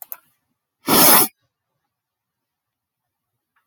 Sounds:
Sniff